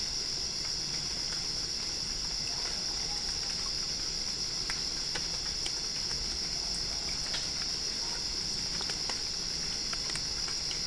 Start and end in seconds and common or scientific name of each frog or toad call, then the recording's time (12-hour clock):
none
12:00am